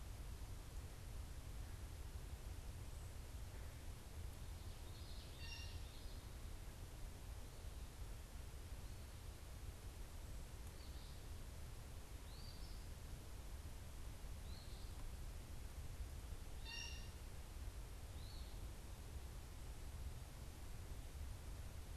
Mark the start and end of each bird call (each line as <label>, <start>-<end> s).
Common Yellowthroat (Geothlypis trichas), 4.6-6.2 s
Blue Jay (Cyanocitta cristata), 5.1-5.9 s
Eastern Phoebe (Sayornis phoebe), 10.3-13.0 s
Eastern Phoebe (Sayornis phoebe), 14.0-19.0 s
Blue Jay (Cyanocitta cristata), 16.4-17.3 s